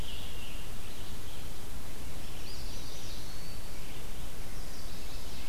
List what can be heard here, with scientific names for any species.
Piranga olivacea, Vireo olivaceus, Setophaga pensylvanica, Contopus virens